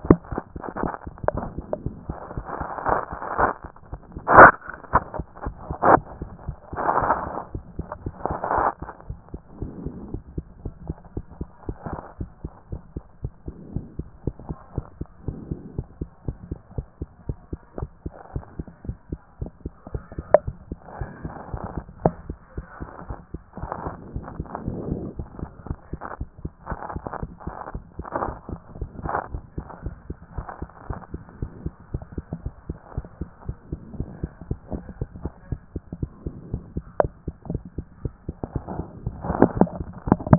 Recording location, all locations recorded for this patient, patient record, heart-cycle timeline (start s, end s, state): mitral valve (MV)
aortic valve (AV)+pulmonary valve (PV)+tricuspid valve (TV)+mitral valve (MV)
#Age: Child
#Sex: Male
#Height: 134.0 cm
#Weight: 39.9 kg
#Pregnancy status: False
#Murmur: Absent
#Murmur locations: nan
#Most audible location: nan
#Systolic murmur timing: nan
#Systolic murmur shape: nan
#Systolic murmur grading: nan
#Systolic murmur pitch: nan
#Systolic murmur quality: nan
#Diastolic murmur timing: nan
#Diastolic murmur shape: nan
#Diastolic murmur grading: nan
#Diastolic murmur pitch: nan
#Diastolic murmur quality: nan
#Outcome: Normal
#Campaign: 2014 screening campaign
0.00	9.08	unannotated
9.08	9.18	S1
9.18	9.32	systole
9.32	9.42	S2
9.42	9.60	diastole
9.60	9.72	S1
9.72	9.84	systole
9.84	9.94	S2
9.94	10.10	diastole
10.10	10.22	S1
10.22	10.36	systole
10.36	10.44	S2
10.44	10.64	diastole
10.64	10.74	S1
10.74	10.86	systole
10.86	10.96	S2
10.96	11.16	diastole
11.16	11.24	S1
11.24	11.38	systole
11.38	11.48	S2
11.48	11.66	diastole
11.66	11.78	S1
11.78	11.90	systole
11.90	12.00	S2
12.00	12.18	diastole
12.18	12.30	S1
12.30	12.42	systole
12.42	12.52	S2
12.52	12.70	diastole
12.70	12.82	S1
12.82	12.94	systole
12.94	13.04	S2
13.04	13.22	diastole
13.22	13.32	S1
13.32	13.46	systole
13.46	13.54	S2
13.54	13.74	diastole
13.74	13.86	S1
13.86	13.98	systole
13.98	14.08	S2
14.08	14.26	diastole
14.26	14.36	S1
14.36	14.48	systole
14.48	14.58	S2
14.58	14.76	diastole
14.76	14.86	S1
14.86	14.98	systole
14.98	15.06	S2
15.06	15.26	diastole
15.26	15.38	S1
15.38	15.50	systole
15.50	15.60	S2
15.60	15.76	diastole
15.76	15.86	S1
15.86	16.00	systole
16.00	16.08	S2
16.08	16.26	diastole
16.26	16.38	S1
16.38	16.50	systole
16.50	16.58	S2
16.58	16.76	diastole
16.76	16.86	S1
16.86	17.00	systole
17.00	17.10	S2
17.10	17.28	diastole
17.28	17.38	S1
17.38	17.52	systole
17.52	17.60	S2
17.60	17.78	diastole
17.78	17.90	S1
17.90	18.04	systole
18.04	18.14	S2
18.14	18.34	diastole
18.34	18.44	S1
18.44	18.58	systole
18.58	18.66	S2
18.66	18.86	diastole
18.86	18.98	S1
18.98	19.10	systole
19.10	19.20	S2
19.20	19.40	diastole
19.40	19.52	S1
19.52	19.64	systole
19.64	19.74	S2
19.74	19.92	diastole
19.92	20.04	S1
20.04	20.16	systole
20.16	20.26	S2
20.26	20.46	diastole
20.46	20.56	S1
20.56	20.70	systole
20.70	20.78	S2
20.78	20.98	diastole
20.98	21.10	S1
21.10	21.24	systole
21.24	21.34	S2
21.34	21.52	diastole
21.52	21.64	S1
21.64	21.76	systole
21.76	21.84	S2
21.84	22.04	diastole
22.04	22.16	S1
22.16	22.28	systole
22.28	22.38	S2
22.38	22.56	diastole
22.56	22.66	S1
22.66	22.80	systole
22.80	22.90	S2
22.90	23.08	diastole
23.08	23.18	S1
23.18	23.32	systole
23.32	23.42	S2
23.42	23.60	diastole
23.60	23.70	S1
23.70	23.84	systole
23.84	23.94	S2
23.94	24.14	diastole
24.14	24.26	S1
24.26	24.38	systole
24.38	24.48	S2
24.48	24.66	diastole
24.66	24.80	S1
24.80	24.93	systole
24.93	25.01	S2
25.01	25.18	diastole
25.18	25.28	S1
25.28	25.40	systole
25.40	25.50	S2
25.50	25.68	diastole
25.68	25.78	S1
25.78	25.92	systole
25.92	26.00	S2
26.00	26.20	diastole
26.20	26.30	S1
26.30	26.44	systole
26.44	26.52	S2
26.52	26.70	diastole
26.70	40.38	unannotated